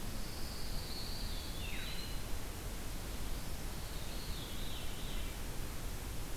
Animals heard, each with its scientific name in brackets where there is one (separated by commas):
Eastern Wood-Pewee (Contopus virens), Veery (Catharus fuscescens), Pine Warbler (Setophaga pinus)